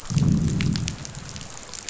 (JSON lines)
{"label": "biophony, growl", "recorder": "SoundTrap 500"}